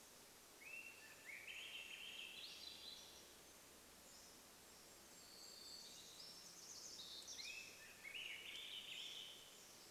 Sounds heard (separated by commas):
Swainson's Thrush call, Swainson's Thrush song, warbler song, Golden-crowned Kinglet song